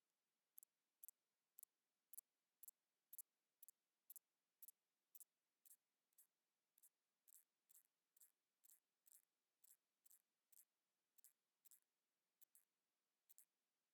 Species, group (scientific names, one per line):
Thyreonotus corsicus
Orthoptera